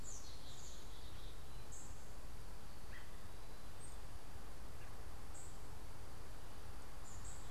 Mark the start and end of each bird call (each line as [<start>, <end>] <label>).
[0.00, 1.57] Black-capped Chickadee (Poecile atricapillus)
[0.00, 7.47] unidentified bird
[2.67, 3.17] American Robin (Turdus migratorius)